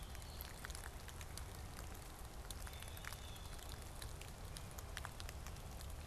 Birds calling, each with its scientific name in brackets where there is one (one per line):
Blue-headed Vireo (Vireo solitarius)
Blue Jay (Cyanocitta cristata)